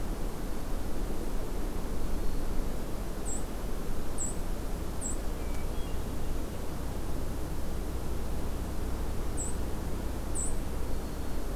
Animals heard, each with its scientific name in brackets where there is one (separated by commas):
White-throated Sparrow (Zonotrichia albicollis), Black-throated Green Warbler (Setophaga virens), Hermit Thrush (Catharus guttatus)